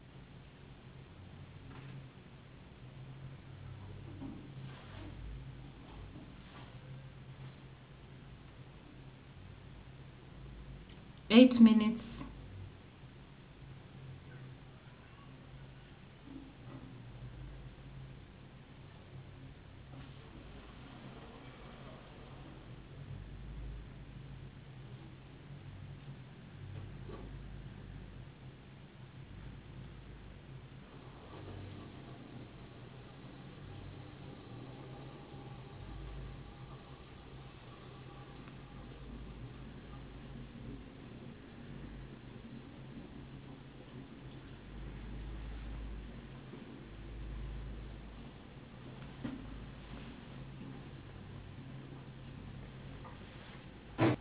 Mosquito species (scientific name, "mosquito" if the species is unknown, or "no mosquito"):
no mosquito